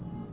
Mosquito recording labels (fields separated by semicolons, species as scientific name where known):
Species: Aedes albopictus; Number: one; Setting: insect culture